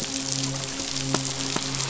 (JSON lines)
{"label": "biophony, midshipman", "recorder": "SoundTrap 500"}